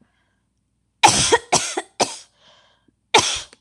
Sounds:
Cough